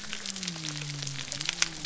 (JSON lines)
{"label": "biophony", "recorder": "SoundTrap 300"}